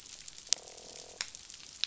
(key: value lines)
label: biophony, croak
recorder: SoundTrap 500